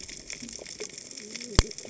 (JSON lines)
{"label": "biophony, cascading saw", "recorder": "HydroMoth"}